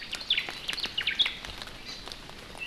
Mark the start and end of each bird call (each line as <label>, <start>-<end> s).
Omao (Myadestes obscurus), 0.0-1.4 s